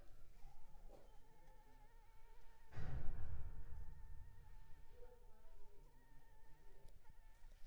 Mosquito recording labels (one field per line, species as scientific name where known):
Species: Anopheles arabiensis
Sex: female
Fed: unfed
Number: one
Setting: cup